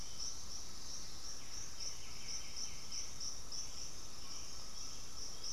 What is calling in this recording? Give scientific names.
Turdus hauxwelli, Pachyramphus polychopterus, Trogon viridis